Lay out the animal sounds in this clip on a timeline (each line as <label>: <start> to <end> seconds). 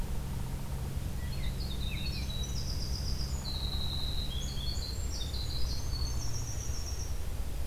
Downy Woodpecker (Dryobates pubescens): 0.0 to 1.0 seconds
American Robin (Turdus migratorius): 1.1 to 2.3 seconds
Winter Wren (Troglodytes hiemalis): 1.1 to 7.2 seconds
Downy Woodpecker (Dryobates pubescens): 5.7 to 6.6 seconds